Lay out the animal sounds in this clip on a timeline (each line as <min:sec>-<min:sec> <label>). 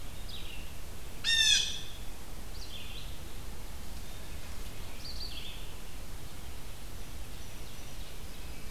0:00.2-0:08.7 Red-eyed Vireo (Vireo olivaceus)
0:01.0-0:02.2 Blue Jay (Cyanocitta cristata)